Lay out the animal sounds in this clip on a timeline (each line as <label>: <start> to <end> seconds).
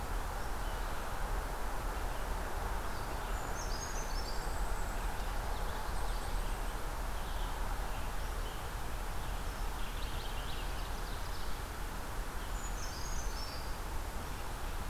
Brown Creeper (Certhia americana): 3.1 to 4.6 seconds
Golden-crowned Kinglet (Regulus satrapa): 4.1 to 5.2 seconds
Purple Finch (Haemorhous purpureus): 5.0 to 6.4 seconds
Golden-crowned Kinglet (Regulus satrapa): 5.9 to 6.8 seconds
American Robin (Turdus migratorius): 6.3 to 9.4 seconds
Purple Finch (Haemorhous purpureus): 9.6 to 11.3 seconds
Ovenbird (Seiurus aurocapilla): 10.3 to 11.7 seconds
Brown Creeper (Certhia americana): 12.2 to 13.8 seconds